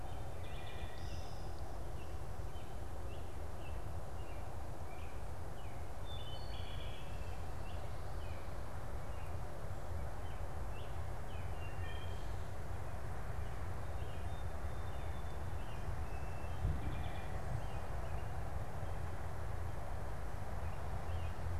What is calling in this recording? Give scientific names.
Turdus migratorius, Hylocichla mustelina, unidentified bird